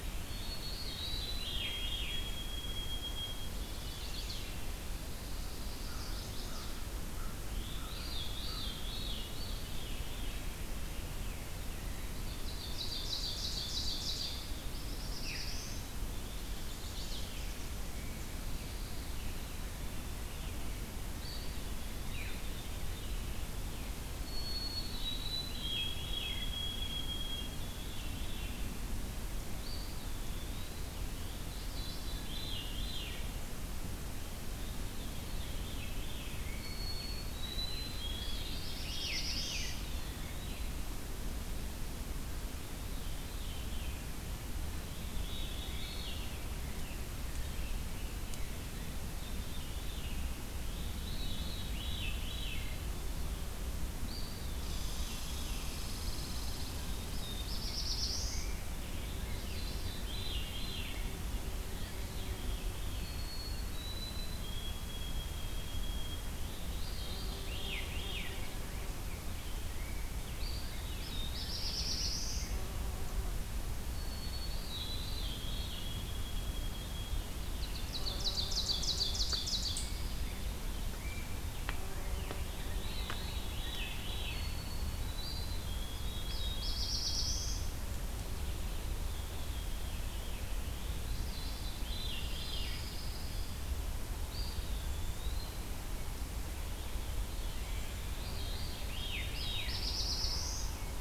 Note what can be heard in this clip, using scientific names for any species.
Zonotrichia albicollis, Catharus fuscescens, Setophaga pensylvanica, Corvus brachyrhynchos, Seiurus aurocapilla, Setophaga caerulescens, Contopus virens, Tamiasciurus hudsonicus, Setophaga pinus, Pheucticus ludovicianus